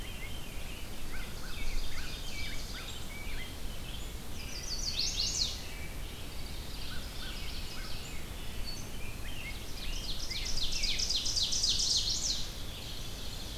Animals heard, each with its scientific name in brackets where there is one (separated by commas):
Chestnut-sided Warbler (Setophaga pensylvanica), American Crow (Corvus brachyrhynchos), Rose-breasted Grosbeak (Pheucticus ludovicianus), American Robin (Turdus migratorius), Ovenbird (Seiurus aurocapilla), Veery (Catharus fuscescens)